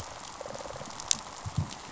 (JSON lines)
{"label": "biophony, rattle response", "recorder": "SoundTrap 500"}